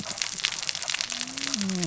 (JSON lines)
{"label": "biophony, cascading saw", "recorder": "SoundTrap 600 or HydroMoth"}